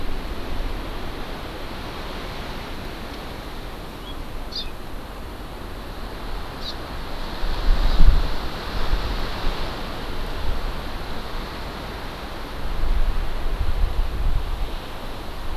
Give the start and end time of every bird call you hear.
3.8s-4.1s: House Finch (Haemorhous mexicanus)
4.4s-4.7s: House Finch (Haemorhous mexicanus)
6.5s-6.7s: Hawaii Amakihi (Chlorodrepanis virens)
7.8s-8.0s: Hawaii Amakihi (Chlorodrepanis virens)

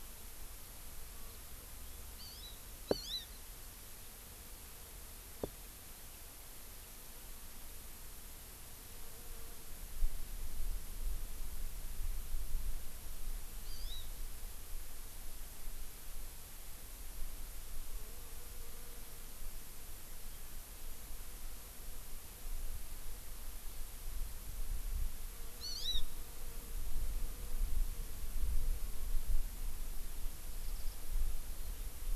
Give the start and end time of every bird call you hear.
2.2s-2.6s: Hawaii Amakihi (Chlorodrepanis virens)
2.9s-3.3s: Hawaii Amakihi (Chlorodrepanis virens)
13.7s-14.1s: Hawaii Amakihi (Chlorodrepanis virens)
25.6s-26.0s: Hawaii Amakihi (Chlorodrepanis virens)
30.6s-31.0s: Warbling White-eye (Zosterops japonicus)

